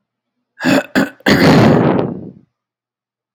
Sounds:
Throat clearing